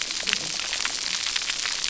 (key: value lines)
label: biophony, cascading saw
recorder: SoundTrap 300